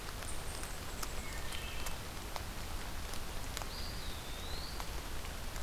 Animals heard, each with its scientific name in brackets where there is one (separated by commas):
Eastern Wood-Pewee (Contopus virens), Wood Thrush (Hylocichla mustelina)